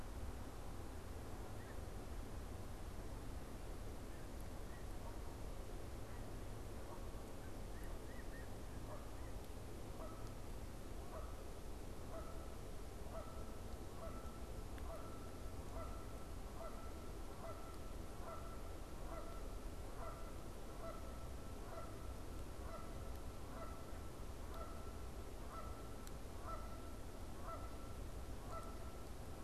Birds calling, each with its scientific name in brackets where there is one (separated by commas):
Canada Goose (Branta canadensis), Snow Goose (Anser caerulescens)